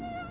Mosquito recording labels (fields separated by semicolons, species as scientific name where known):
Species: Aedes aegypti; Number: one; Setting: insect culture